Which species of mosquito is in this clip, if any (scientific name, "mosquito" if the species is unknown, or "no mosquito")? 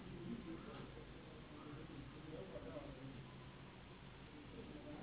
Anopheles gambiae s.s.